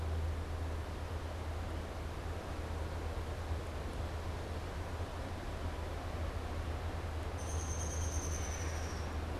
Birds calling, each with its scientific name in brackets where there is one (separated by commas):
Downy Woodpecker (Dryobates pubescens)